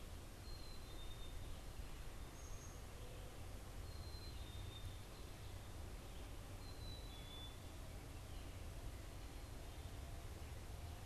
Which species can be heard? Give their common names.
Black-capped Chickadee